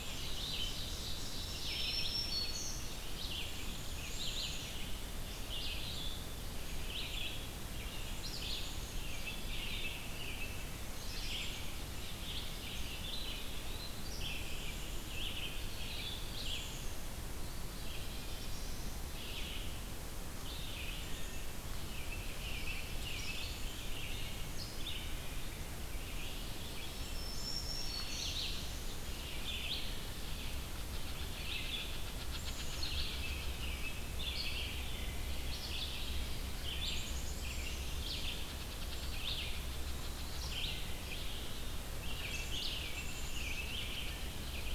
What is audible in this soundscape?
Ovenbird, Black-capped Chickadee, Red-eyed Vireo, Black-throated Green Warbler, American Robin, Eastern Wood-Pewee, Black-throated Blue Warbler, unknown mammal